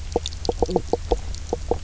{"label": "biophony, knock croak", "recorder": "SoundTrap 300"}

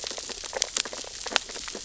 {"label": "biophony, sea urchins (Echinidae)", "recorder": "SoundTrap 600 or HydroMoth"}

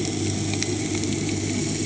{"label": "anthrophony, boat engine", "recorder": "HydroMoth"}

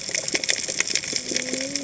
{"label": "biophony, cascading saw", "recorder": "HydroMoth"}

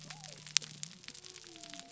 {"label": "biophony", "recorder": "SoundTrap 300"}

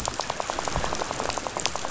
{"label": "biophony, rattle", "recorder": "SoundTrap 500"}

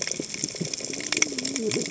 {"label": "biophony, cascading saw", "recorder": "HydroMoth"}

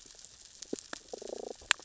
{"label": "biophony, damselfish", "recorder": "SoundTrap 600 or HydroMoth"}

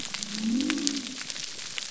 {"label": "biophony", "recorder": "SoundTrap 300"}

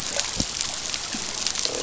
{"label": "biophony, croak", "recorder": "SoundTrap 500"}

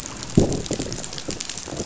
{"label": "biophony, growl", "recorder": "SoundTrap 500"}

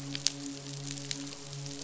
{"label": "biophony, midshipman", "recorder": "SoundTrap 500"}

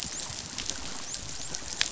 {"label": "biophony, dolphin", "recorder": "SoundTrap 500"}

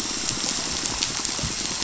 {"label": "biophony, pulse", "recorder": "SoundTrap 500"}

